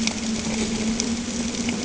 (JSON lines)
{"label": "anthrophony, boat engine", "recorder": "HydroMoth"}